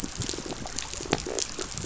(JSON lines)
{"label": "biophony", "recorder": "SoundTrap 500"}